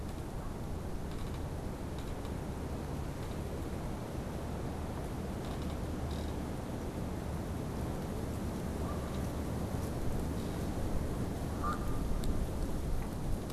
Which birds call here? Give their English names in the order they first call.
Canada Goose